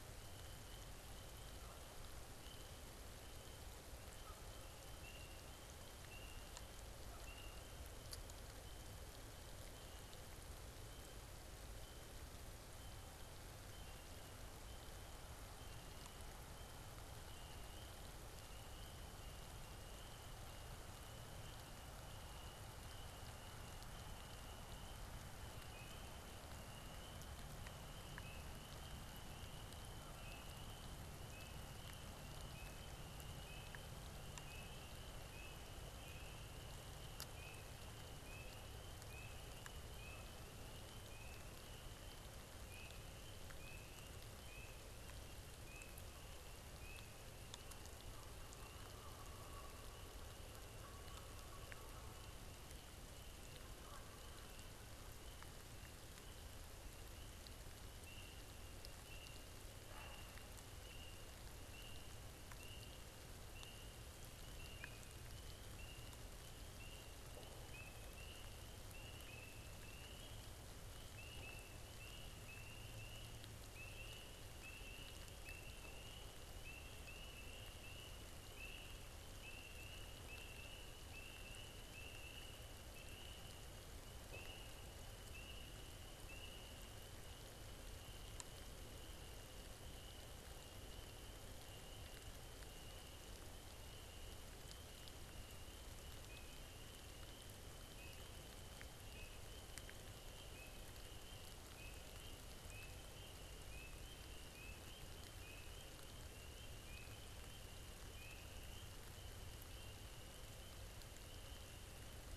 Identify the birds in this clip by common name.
Canada Goose, unidentified bird